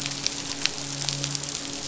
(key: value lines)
label: biophony, midshipman
recorder: SoundTrap 500